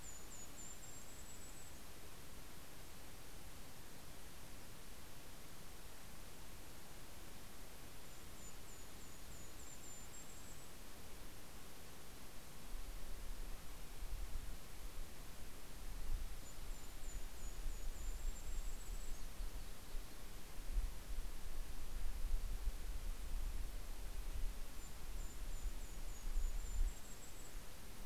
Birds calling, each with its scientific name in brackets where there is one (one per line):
Golden-crowned Kinglet (Regulus satrapa)